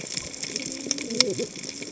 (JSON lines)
{"label": "biophony, cascading saw", "recorder": "HydroMoth"}